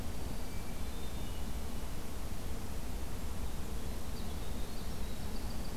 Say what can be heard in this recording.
Black-throated Green Warbler, Hermit Thrush, Winter Wren